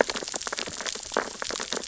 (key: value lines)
label: biophony, sea urchins (Echinidae)
recorder: SoundTrap 600 or HydroMoth